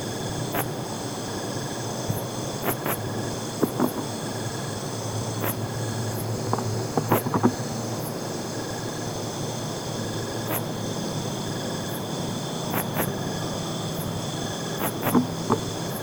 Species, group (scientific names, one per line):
Phyllomimus inversus
Orthoptera